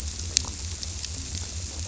{"label": "biophony", "recorder": "SoundTrap 300"}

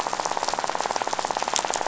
{"label": "biophony, rattle", "recorder": "SoundTrap 500"}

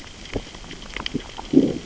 {"label": "biophony, growl", "recorder": "SoundTrap 600 or HydroMoth"}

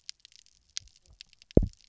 {"label": "biophony, double pulse", "recorder": "SoundTrap 300"}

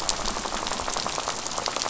{"label": "biophony, rattle", "recorder": "SoundTrap 500"}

